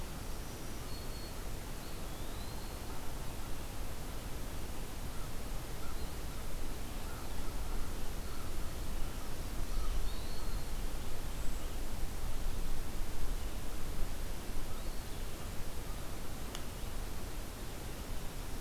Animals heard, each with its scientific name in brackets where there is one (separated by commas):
Black-throated Green Warbler (Setophaga virens), Eastern Wood-Pewee (Contopus virens), American Crow (Corvus brachyrhynchos)